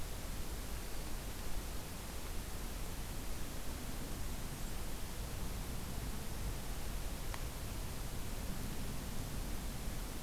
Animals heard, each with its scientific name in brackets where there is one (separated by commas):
Blackburnian Warbler (Setophaga fusca)